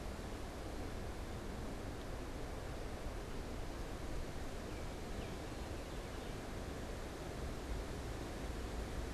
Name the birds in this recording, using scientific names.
Icterus galbula